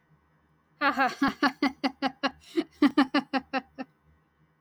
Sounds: Laughter